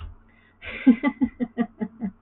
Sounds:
Laughter